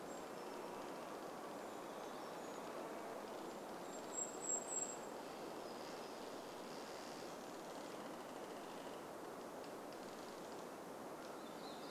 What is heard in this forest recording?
Golden-crowned Kinglet call, tree creak, unidentified sound, Golden-crowned Kinglet song, Red-breasted Nuthatch song, warbler song